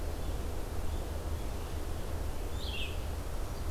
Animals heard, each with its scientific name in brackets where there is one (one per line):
Red-eyed Vireo (Vireo olivaceus)